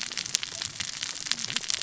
{"label": "biophony, cascading saw", "recorder": "SoundTrap 600 or HydroMoth"}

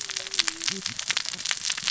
{"label": "biophony, cascading saw", "recorder": "SoundTrap 600 or HydroMoth"}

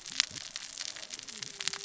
{"label": "biophony, cascading saw", "recorder": "SoundTrap 600 or HydroMoth"}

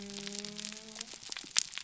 {"label": "biophony", "recorder": "SoundTrap 300"}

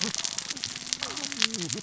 {"label": "biophony, cascading saw", "recorder": "SoundTrap 600 or HydroMoth"}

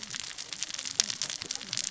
{"label": "biophony, cascading saw", "recorder": "SoundTrap 600 or HydroMoth"}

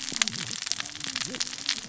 {"label": "biophony, cascading saw", "recorder": "SoundTrap 600 or HydroMoth"}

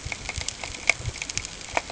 {"label": "ambient", "recorder": "HydroMoth"}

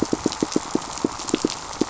{"label": "biophony, pulse", "recorder": "SoundTrap 500"}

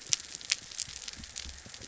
{"label": "biophony", "recorder": "SoundTrap 300"}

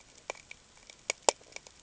{"label": "ambient", "recorder": "HydroMoth"}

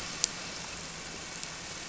{"label": "anthrophony, boat engine", "recorder": "SoundTrap 300"}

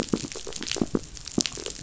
{"label": "biophony, knock", "recorder": "SoundTrap 500"}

